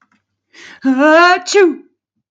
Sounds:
Sneeze